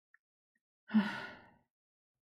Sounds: Sigh